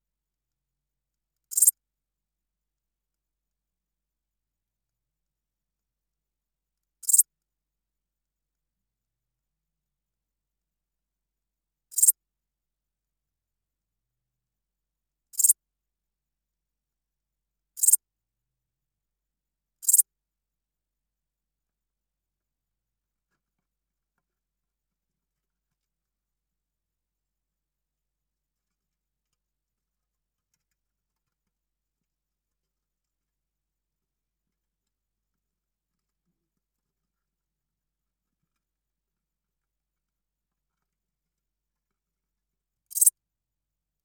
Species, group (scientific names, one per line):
Pholidoptera transsylvanica
Orthoptera